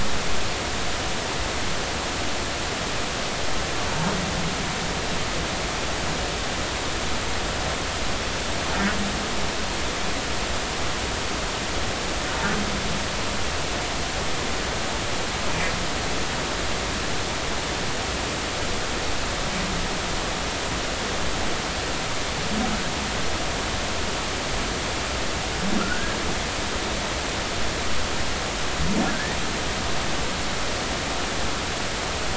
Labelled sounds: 25.8	26.2	humpback whale, 1.2 to 1.7 kHz
29.1	29.4	humpback whale, 1.5 to 1.9 kHz

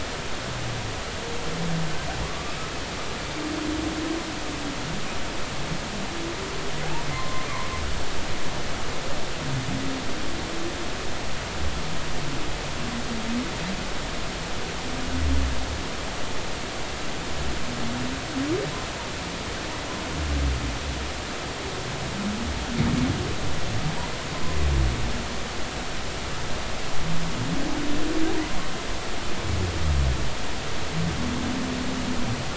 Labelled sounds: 2.2	2.5	humpback whale, 1.1 to 1.2 kHz
7.1	7.5	humpback whale, 0.99 to 1.2 kHz

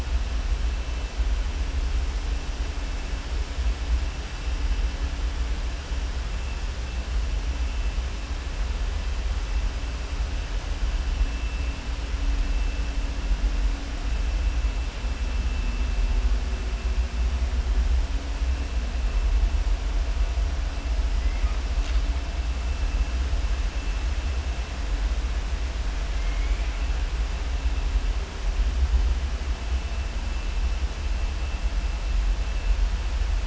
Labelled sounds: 26.1	26.8	killer whale, southern resident, 1.4 to 2.5 kHz

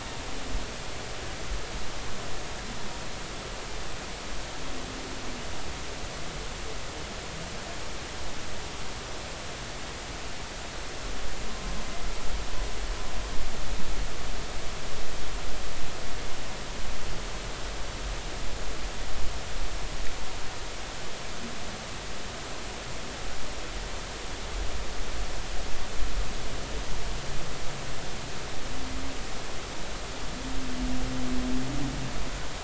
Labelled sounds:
11.5	11.7	humpback whale, 0.99 to 1.1 kHz

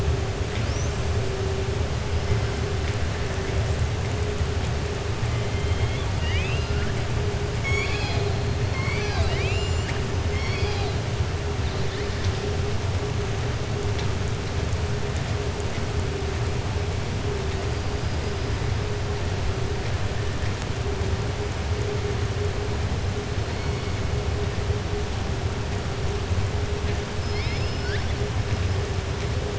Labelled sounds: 5.5	6.9	killer whale, southern resident, 1.4 to 5.0 kHz
7.5	8.3	killer whale, southern resident, 0.83 to 7.8 kHz
8.6	10.0	killer whale, southern resident, 0.72 to 7.6 kHz
27.2	28.1	killer whale, southern resident, 1.5 to 5.4 kHz

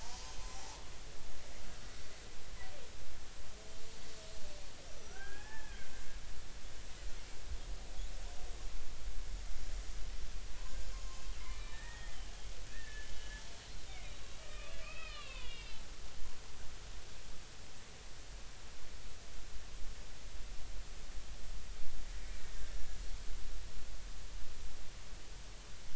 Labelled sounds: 4.9	5.9	killer whale, Bigg's (transient), 0.80 to 6.0 kHz
10.6	12.2	killer whale, Bigg's (transient), 1.7 to 6.9 kHz
12.7	13.1	killer whale, Bigg's (transient), 1.6 to 1.9 kHz
14.0	15.8	killer whale, Bigg's (transient), 0.93 to 4.4 kHz
22.4	22.7	killer whale, Bigg's (transient), 1.8 to 1.9 kHz

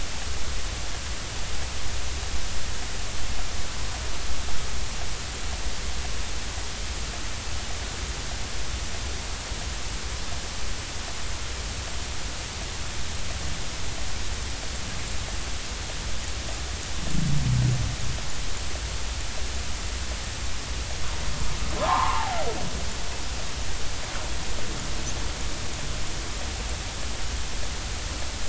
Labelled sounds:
21.8	22.3	humpback whale, 0.80 to 1.3 kHz

